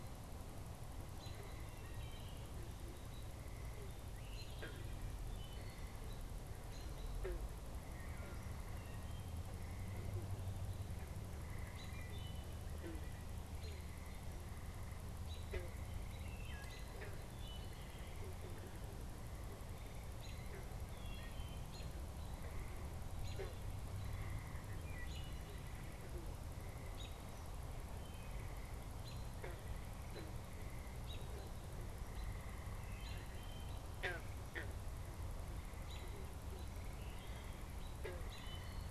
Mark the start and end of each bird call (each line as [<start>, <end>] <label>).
[0.00, 25.97] Wood Thrush (Hylocichla mustelina)
[0.00, 27.47] American Robin (Turdus migratorius)
[27.97, 28.97] Wood Thrush (Hylocichla mustelina)
[28.87, 38.91] American Robin (Turdus migratorius)
[29.67, 38.91] Wood Thrush (Hylocichla mustelina)